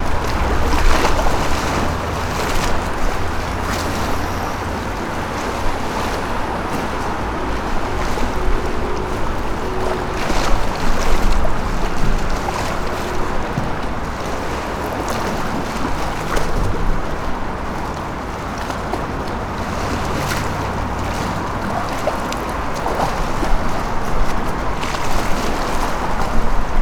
Is the noise coming from some liquid?
yes